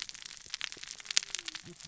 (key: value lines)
label: biophony, cascading saw
recorder: SoundTrap 600 or HydroMoth